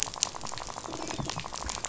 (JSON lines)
{"label": "biophony, rattle", "recorder": "SoundTrap 500"}